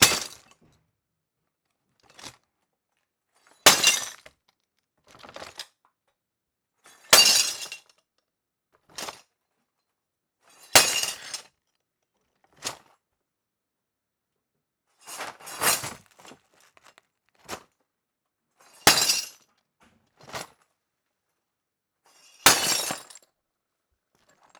Does anyone speak?
no